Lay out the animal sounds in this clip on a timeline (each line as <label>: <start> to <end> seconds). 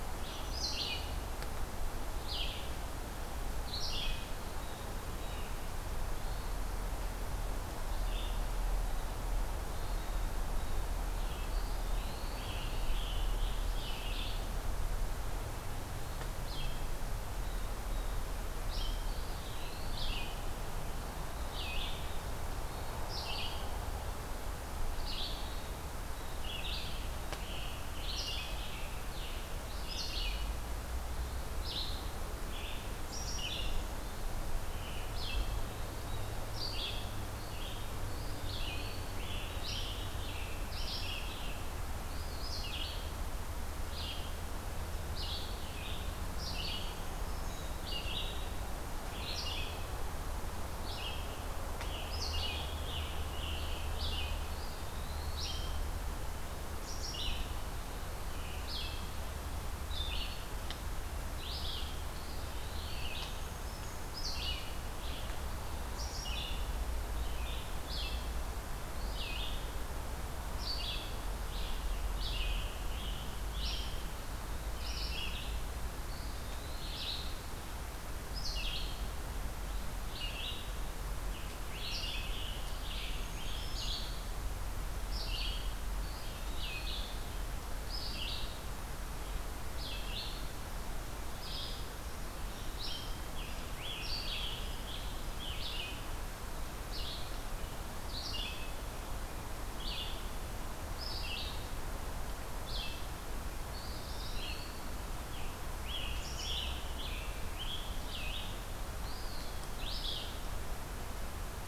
Red-eyed Vireo (Vireo olivaceus): 0.0 to 4.3 seconds
Blue Jay (Cyanocitta cristata): 4.5 to 5.6 seconds
Hermit Thrush (Catharus guttatus): 6.1 to 6.6 seconds
Red-eyed Vireo (Vireo olivaceus): 7.9 to 8.4 seconds
Hermit Thrush (Catharus guttatus): 9.6 to 10.3 seconds
Red-eyed Vireo (Vireo olivaceus): 11.0 to 68.3 seconds
Eastern Wood-Pewee (Contopus virens): 11.5 to 12.6 seconds
Scarlet Tanager (Piranga olivacea): 11.8 to 14.2 seconds
Blue Jay (Cyanocitta cristata): 17.3 to 18.3 seconds
Eastern Wood-Pewee (Contopus virens): 19.1 to 20.4 seconds
Hermit Thrush (Catharus guttatus): 22.6 to 23.0 seconds
Scarlet Tanager (Piranga olivacea): 26.6 to 30.1 seconds
Eastern Wood-Pewee (Contopus virens): 38.1 to 39.2 seconds
Scarlet Tanager (Piranga olivacea): 39.0 to 41.3 seconds
Black-throated Green Warbler (Setophaga virens): 46.8 to 47.7 seconds
Scarlet Tanager (Piranga olivacea): 51.3 to 54.1 seconds
Eastern Wood-Pewee (Contopus virens): 54.4 to 55.5 seconds
Eastern Wood-Pewee (Contopus virens): 62.1 to 63.1 seconds
Black-throated Green Warbler (Setophaga virens): 63.1 to 64.1 seconds
Red-eyed Vireo (Vireo olivaceus): 68.9 to 111.7 seconds
Eastern Wood-Pewee (Contopus virens): 76.0 to 77.2 seconds
Scarlet Tanager (Piranga olivacea): 81.1 to 83.9 seconds
Black-throated Green Warbler (Setophaga virens): 83.1 to 84.0 seconds
Eastern Wood-Pewee (Contopus virens): 86.0 to 87.1 seconds
Scarlet Tanager (Piranga olivacea): 92.7 to 96.0 seconds
Eastern Wood-Pewee (Contopus virens): 103.6 to 104.9 seconds
Scarlet Tanager (Piranga olivacea): 105.2 to 108.1 seconds
Eastern Wood-Pewee (Contopus virens): 109.0 to 109.8 seconds